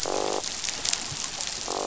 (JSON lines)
{"label": "biophony, croak", "recorder": "SoundTrap 500"}